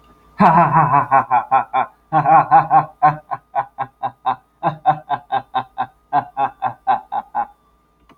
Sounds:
Laughter